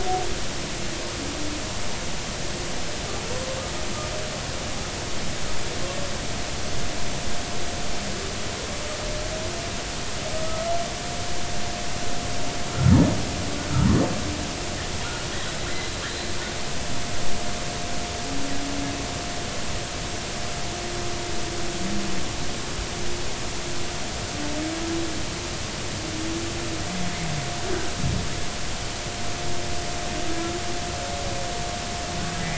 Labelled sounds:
10.4	10.8	humpback whale, 1.2 to 1.4 kHz
15.4	15.7	humpback whale, 3.8 to 4.0 kHz

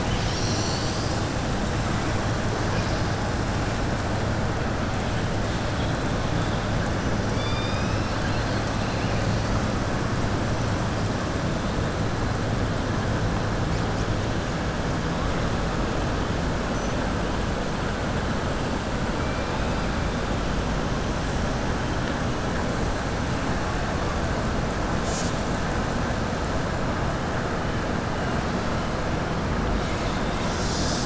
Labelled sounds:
7.3	8.7	killer whale, southern resident, 2.0 to 5.9 kHz

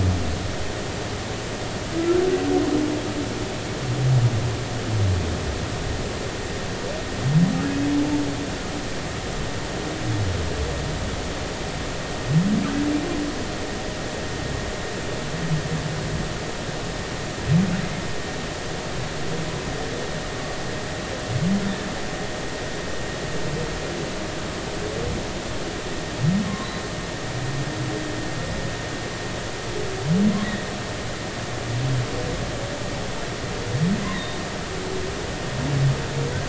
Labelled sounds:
34.1	34.4	humpback whale, 3.6 to 4.0 kHz

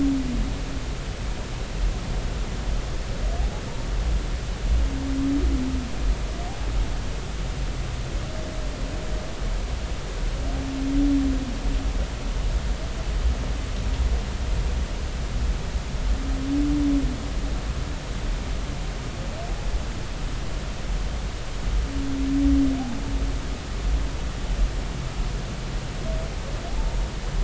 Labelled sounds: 26.7	27.0	humpback whale, 0.80 to 0.96 kHz

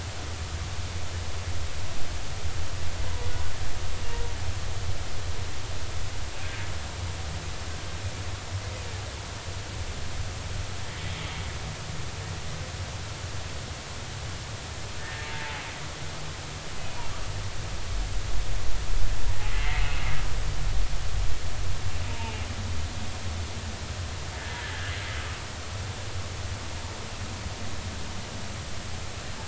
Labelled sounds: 15.0	15.3	humpback whale, 1.7 to 1.9 kHz
16.8	17.0	humpback whale, 2.4 to 2.6 kHz
19.5	19.8	humpback whale, 1.9 to 2.2 kHz
22.1	22.4	humpback whale, 0.83 to 2.6 kHz
24.4	24.6	humpback whale, 1.5 to 1.8 kHz

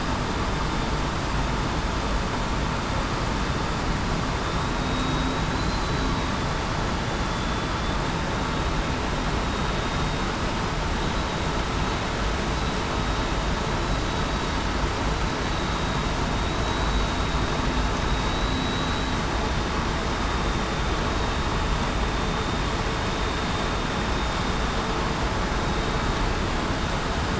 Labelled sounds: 4.7	5.5	vessel noise, 3.7 to 3.8 kHz
18.2	18.7	vessel noise, 3.8 to 4.0 kHz

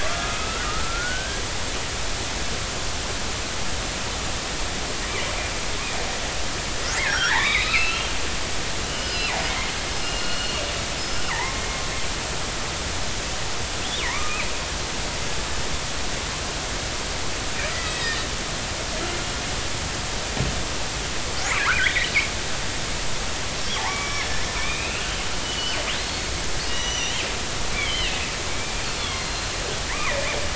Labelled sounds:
0.0	1.4	killer whale, northern resident, 1.1 to 2.7 kHz
7.0	8.1	killer whale, northern resident, 0.80 to 4.0 kHz
8.9	9.3	killer whale, northern resident, 2.4 to 5.2 kHz
10.0	11.7	killer whale, northern resident, 0.80 to 5.2 kHz
14.0	14.4	killer whale, northern resident, 0.90 to 2.5 kHz
17.7	18.2	killer whale, northern resident, 1.8 to 2.0 kHz
21.6	21.9	killer whale, northern resident, 0.96 to 1.8 kHz
23.8	25.1	killer whale, northern resident, 0.80 to 3.9 kHz
25.4	25.8	killer whale, northern resident, 2.8 to 4.6 kHz
26.7	27.2	killer whale, northern resident, 2.7 to 6.0 kHz
27.8	28.2	killer whale, northern resident, 2.5 to 3.6 kHz
28.6	29.5	killer whale, northern resident, 1.0 to 4.5 kHz

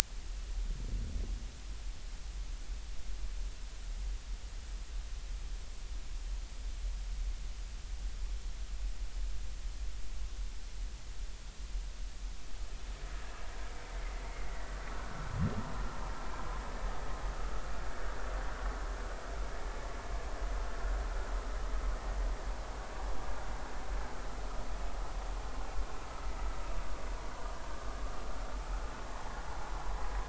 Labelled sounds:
14.2	14.5	vessel noise, 2.0 to 2.2 kHz

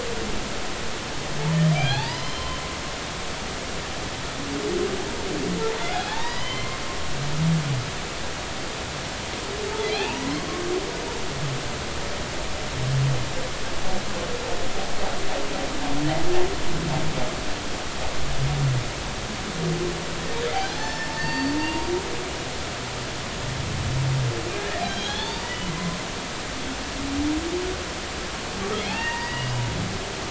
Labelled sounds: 1.7	2.6	humpback whale, 0.80 to 5.2 kHz
5.8	6.8	humpback whale, 0.80 to 4.0 kHz
9.9	10.5	humpback whale, 0.80 to 2.9 kHz
20.5	21.9	humpback whale, 0.80 to 5.4 kHz
24.5	26.0	humpback whale, 0.80 to 4.8 kHz
28.7	29.7	humpback whale, 0.80 to 3.5 kHz

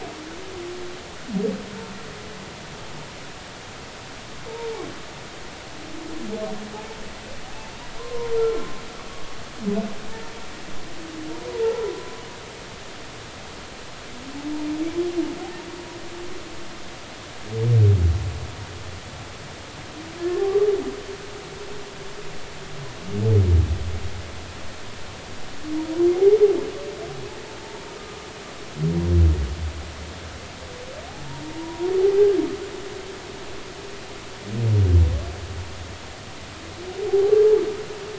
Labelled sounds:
8.0	8.6	humpback whale, 0.90 to 1.4 kHz
11.6	12.0	humpback whale, 0.80 to 1.0 kHz
20.2	20.5	humpback whale, 1.7 to 1.8 kHz
27.6	27.9	humpback whale, 0.86 to 1.0 kHz
31.5	31.9	humpback whale, 0.86 to 1.0 kHz
37.1	37.3	humpback whale, 0.80 to 0.86 kHz

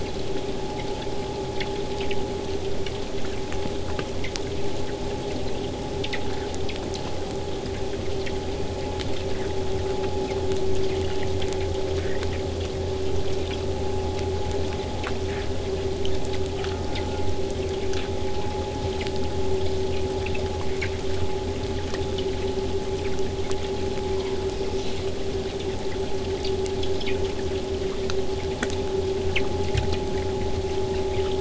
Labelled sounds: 16.5	17.3	killer whale, southern resident, J pod, call S04, 0.43 to 1.9 kHz

